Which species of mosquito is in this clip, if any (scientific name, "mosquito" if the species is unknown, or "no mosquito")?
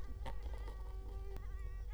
Culex quinquefasciatus